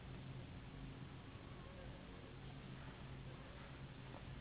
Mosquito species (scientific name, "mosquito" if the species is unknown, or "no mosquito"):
Anopheles gambiae s.s.